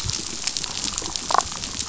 {"label": "biophony, damselfish", "recorder": "SoundTrap 500"}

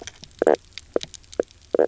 {"label": "biophony, knock croak", "recorder": "SoundTrap 300"}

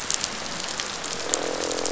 {"label": "biophony, croak", "recorder": "SoundTrap 500"}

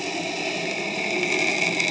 {"label": "anthrophony, boat engine", "recorder": "HydroMoth"}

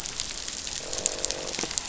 {"label": "biophony, croak", "recorder": "SoundTrap 500"}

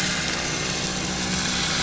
{"label": "anthrophony, boat engine", "recorder": "SoundTrap 500"}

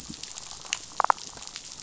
{"label": "biophony, damselfish", "recorder": "SoundTrap 500"}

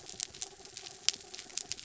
{"label": "anthrophony, mechanical", "recorder": "SoundTrap 300"}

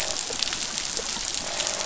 {"label": "biophony, croak", "recorder": "SoundTrap 500"}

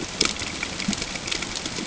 {"label": "ambient", "recorder": "HydroMoth"}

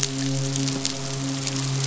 {"label": "biophony, midshipman", "recorder": "SoundTrap 500"}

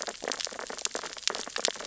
{"label": "biophony, sea urchins (Echinidae)", "recorder": "SoundTrap 600 or HydroMoth"}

